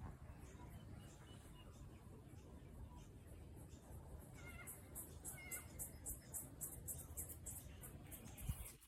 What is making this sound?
Yoyetta celis, a cicada